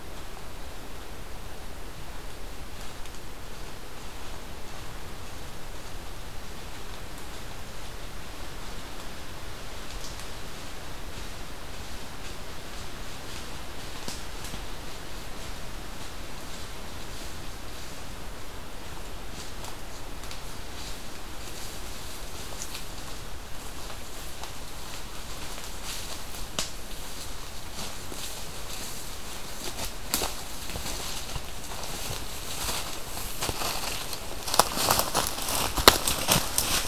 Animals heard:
forest ambience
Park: Katahdin Woods and Waters National Monument